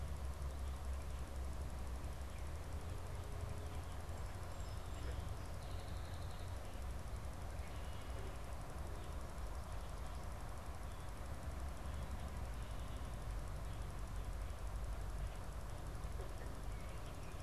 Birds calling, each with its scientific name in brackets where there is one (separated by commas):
Song Sparrow (Melospiza melodia)